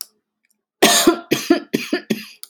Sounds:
Cough